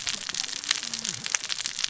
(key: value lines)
label: biophony, cascading saw
recorder: SoundTrap 600 or HydroMoth